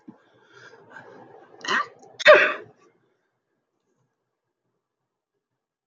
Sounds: Sneeze